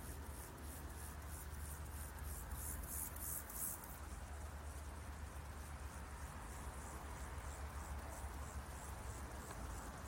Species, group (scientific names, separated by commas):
Chorthippus mollis, Orthoptera